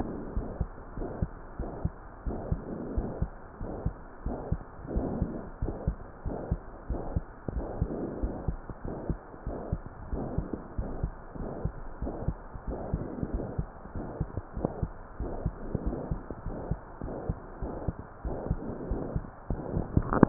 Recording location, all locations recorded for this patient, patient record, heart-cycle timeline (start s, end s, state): aortic valve (AV)
aortic valve (AV)+pulmonary valve (PV)+tricuspid valve (TV)+mitral valve (MV)
#Age: Child
#Sex: Female
#Height: 128.0 cm
#Weight: 37.0 kg
#Pregnancy status: False
#Murmur: Present
#Murmur locations: aortic valve (AV)+mitral valve (MV)+pulmonary valve (PV)+tricuspid valve (TV)
#Most audible location: pulmonary valve (PV)
#Systolic murmur timing: Holosystolic
#Systolic murmur shape: Plateau
#Systolic murmur grading: II/VI
#Systolic murmur pitch: Medium
#Systolic murmur quality: Blowing
#Diastolic murmur timing: nan
#Diastolic murmur shape: nan
#Diastolic murmur grading: nan
#Diastolic murmur pitch: nan
#Diastolic murmur quality: nan
#Outcome: Abnormal
#Campaign: 2015 screening campaign
0.00	0.84	unannotated
0.84	0.96	diastole
0.96	1.10	S1
1.10	1.18	systole
1.18	1.30	S2
1.30	1.58	diastole
1.58	1.72	S1
1.72	1.82	systole
1.82	1.94	S2
1.94	2.22	diastole
2.22	2.38	S1
2.38	2.48	systole
2.48	2.62	S2
2.62	2.90	diastole
2.90	3.08	S1
3.08	3.18	systole
3.18	3.30	S2
3.30	3.60	diastole
3.60	3.74	S1
3.74	3.84	systole
3.84	3.96	S2
3.96	4.24	diastole
4.24	4.38	S1
4.38	4.48	systole
4.48	4.62	S2
4.62	4.94	diastole
4.94	5.12	S1
5.12	5.20	systole
5.20	5.34	S2
5.34	5.58	diastole
5.58	5.71	S1
5.71	5.86	systole
5.86	5.96	S2
5.96	6.23	diastole
6.23	6.38	S1
6.38	6.50	systole
6.50	6.60	S2
6.60	6.90	diastole
6.90	7.02	S1
7.02	7.14	systole
7.14	7.26	S2
7.26	7.54	diastole
7.54	7.68	S1
7.68	7.76	systole
7.76	7.90	S2
7.90	8.20	diastole
8.20	8.36	S1
8.36	8.46	systole
8.46	8.60	S2
8.60	8.88	diastole
8.88	8.98	S1
8.98	9.08	systole
9.08	9.18	S2
9.18	9.46	diastole
9.46	9.60	S1
9.60	9.70	systole
9.70	9.82	S2
9.82	10.10	diastole
10.10	10.28	S1
10.28	10.36	systole
10.36	10.46	S2
10.46	10.78	diastole
10.78	10.92	S1
10.92	11.02	systole
11.02	11.14	S2
11.14	11.40	diastole
11.40	11.52	S1
11.52	11.62	systole
11.62	11.72	S2
11.72	12.02	diastole
12.02	12.16	S1
12.16	12.26	systole
12.26	12.38	S2
12.38	12.68	diastole
12.68	12.80	S1
12.80	12.92	systole
12.92	13.06	S2
13.06	13.32	diastole
13.32	13.48	S1
13.48	13.56	systole
13.56	13.66	S2
13.66	13.96	diastole
13.96	14.08	S1
14.08	14.16	systole
14.16	14.28	S2
14.28	14.56	diastole
14.56	14.70	S1
14.70	14.78	systole
14.78	14.90	S2
14.90	15.20	diastole
15.20	15.34	S1
15.34	15.44	systole
15.44	15.56	S2
15.56	15.84	diastole
15.84	16.00	S1
16.00	16.10	systole
16.10	16.22	S2
16.22	16.46	diastole
16.46	16.58	S1
16.58	16.66	systole
16.66	16.78	S2
16.78	17.04	diastole
17.04	17.11	S1
17.11	17.24	systole
17.24	17.36	S2
17.36	17.62	diastole
17.62	17.74	S1
17.74	17.86	systole
17.86	17.98	S2
17.98	18.24	diastole
18.24	18.36	S1
18.36	18.50	systole
18.50	18.61	S2
18.61	18.90	diastole
18.90	19.00	S1
19.00	19.14	systole
19.14	19.24	S2
19.24	19.37	diastole
19.37	20.29	unannotated